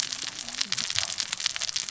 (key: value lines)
label: biophony, cascading saw
recorder: SoundTrap 600 or HydroMoth